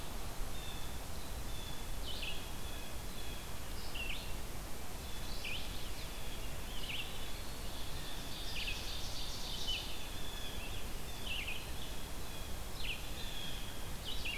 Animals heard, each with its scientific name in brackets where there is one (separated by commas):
Ovenbird (Seiurus aurocapilla), Blue Jay (Cyanocitta cristata), Red-eyed Vireo (Vireo olivaceus), Chestnut-sided Warbler (Setophaga pensylvanica)